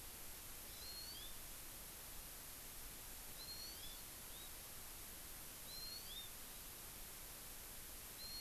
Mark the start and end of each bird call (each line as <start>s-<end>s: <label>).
0.7s-1.3s: Hawaii Amakihi (Chlorodrepanis virens)
3.4s-4.0s: Hawaii Amakihi (Chlorodrepanis virens)
5.7s-6.3s: Hawaii Amakihi (Chlorodrepanis virens)